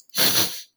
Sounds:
Sniff